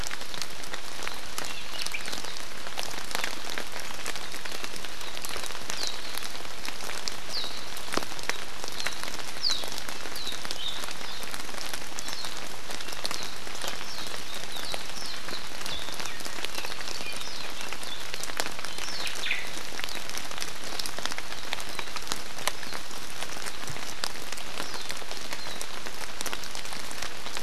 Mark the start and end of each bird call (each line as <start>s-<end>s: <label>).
1.7s-2.0s: Omao (Myadestes obscurus)
5.7s-5.9s: Warbling White-eye (Zosterops japonicus)
7.3s-7.5s: Warbling White-eye (Zosterops japonicus)
9.4s-9.6s: Warbling White-eye (Zosterops japonicus)
10.1s-10.7s: Warbling White-eye (Zosterops japonicus)
11.0s-11.2s: Warbling White-eye (Zosterops japonicus)
12.0s-12.3s: Warbling White-eye (Zosterops japonicus)
13.9s-14.1s: Warbling White-eye (Zosterops japonicus)
14.9s-15.2s: Warbling White-eye (Zosterops japonicus)
15.7s-15.8s: Warbling White-eye (Zosterops japonicus)
18.8s-19.1s: Warbling White-eye (Zosterops japonicus)
19.2s-19.5s: Omao (Myadestes obscurus)